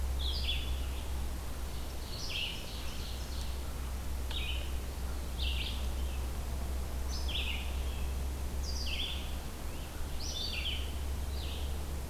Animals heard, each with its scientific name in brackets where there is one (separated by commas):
Red-eyed Vireo (Vireo olivaceus), Ovenbird (Seiurus aurocapilla)